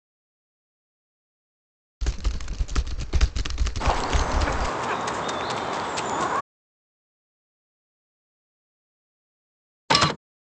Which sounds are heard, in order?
typing, chicken, printer